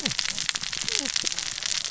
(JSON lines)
{"label": "biophony, cascading saw", "recorder": "SoundTrap 600 or HydroMoth"}